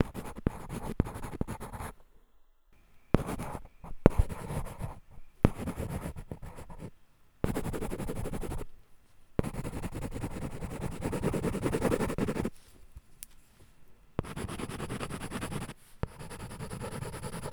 Is writing being done with a typewriter?
no